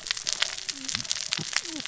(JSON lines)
{"label": "biophony, cascading saw", "recorder": "SoundTrap 600 or HydroMoth"}